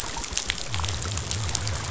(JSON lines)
{"label": "biophony", "recorder": "SoundTrap 500"}